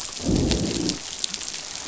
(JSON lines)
{"label": "biophony, growl", "recorder": "SoundTrap 500"}